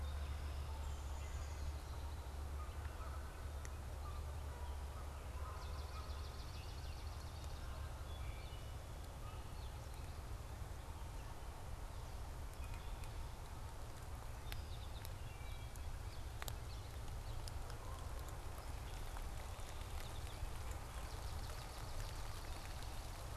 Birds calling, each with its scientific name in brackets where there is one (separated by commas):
Swamp Sparrow (Melospiza georgiana), American Goldfinch (Spinus tristis), Downy Woodpecker (Dryobates pubescens), Wood Thrush (Hylocichla mustelina)